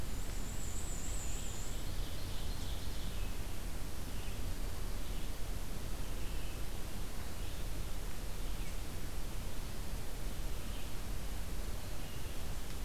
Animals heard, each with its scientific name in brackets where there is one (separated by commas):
Black-and-white Warbler (Mniotilta varia), Ovenbird (Seiurus aurocapilla)